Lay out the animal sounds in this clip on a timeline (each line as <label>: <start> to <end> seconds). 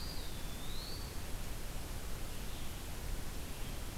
Eastern Wood-Pewee (Contopus virens): 0.0 to 1.2 seconds
Red-eyed Vireo (Vireo olivaceus): 0.0 to 4.0 seconds
Scarlet Tanager (Piranga olivacea): 3.3 to 4.0 seconds